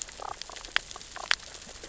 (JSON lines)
{"label": "biophony, damselfish", "recorder": "SoundTrap 600 or HydroMoth"}